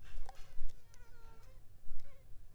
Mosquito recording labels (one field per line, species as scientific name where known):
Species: Culex pipiens complex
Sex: female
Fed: unfed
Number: one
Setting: cup